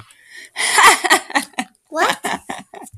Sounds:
Laughter